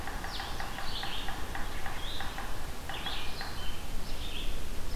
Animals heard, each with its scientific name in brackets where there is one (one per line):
Red-eyed Vireo (Vireo olivaceus)
Blue-headed Vireo (Vireo solitarius)
Yellow-bellied Sapsucker (Sphyrapicus varius)